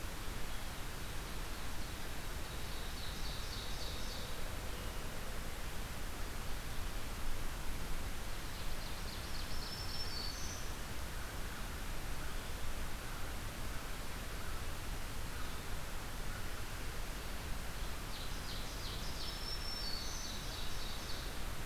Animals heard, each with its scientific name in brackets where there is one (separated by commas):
American Crow (Corvus brachyrhynchos), Black-throated Green Warbler (Setophaga virens), Ovenbird (Seiurus aurocapilla)